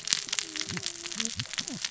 {"label": "biophony, cascading saw", "recorder": "SoundTrap 600 or HydroMoth"}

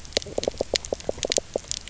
{"label": "biophony, knock", "recorder": "SoundTrap 300"}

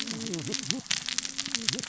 {"label": "biophony, cascading saw", "recorder": "SoundTrap 600 or HydroMoth"}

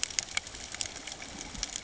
{"label": "ambient", "recorder": "HydroMoth"}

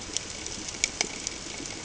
{"label": "ambient", "recorder": "HydroMoth"}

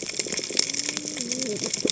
{"label": "biophony, cascading saw", "recorder": "HydroMoth"}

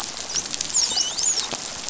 {"label": "biophony, dolphin", "recorder": "SoundTrap 500"}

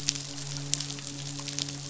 {"label": "biophony, midshipman", "recorder": "SoundTrap 500"}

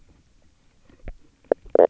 {"label": "biophony, knock croak", "recorder": "SoundTrap 300"}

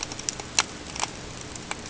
{"label": "ambient", "recorder": "HydroMoth"}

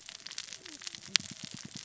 {"label": "biophony, cascading saw", "recorder": "SoundTrap 600 or HydroMoth"}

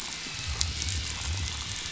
{"label": "biophony", "recorder": "SoundTrap 500"}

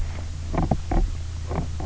{"label": "biophony, knock croak", "recorder": "SoundTrap 300"}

